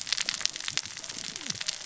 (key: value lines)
label: biophony, cascading saw
recorder: SoundTrap 600 or HydroMoth